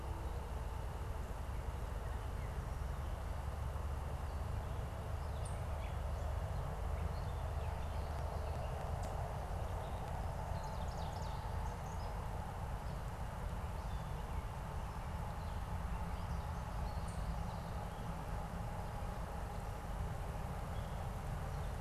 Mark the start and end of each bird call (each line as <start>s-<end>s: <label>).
5.3s-8.0s: Gray Catbird (Dumetella carolinensis)
5.4s-5.6s: unidentified bird
9.6s-12.3s: Ovenbird (Seiurus aurocapilla)
13.4s-21.8s: Gray Catbird (Dumetella carolinensis)
17.1s-17.3s: unidentified bird